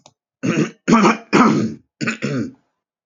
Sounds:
Throat clearing